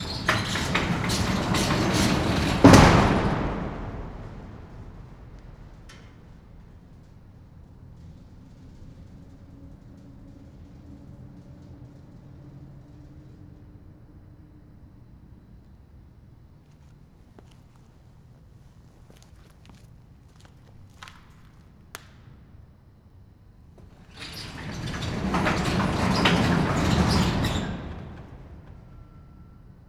What is being opened and closed?
door